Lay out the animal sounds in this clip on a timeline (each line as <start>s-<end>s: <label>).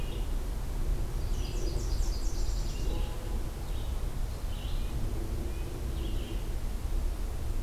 0.0s-7.6s: Red-eyed Vireo (Vireo olivaceus)
1.0s-3.0s: Nashville Warbler (Leiothlypis ruficapilla)
4.5s-5.9s: Red-breasted Nuthatch (Sitta canadensis)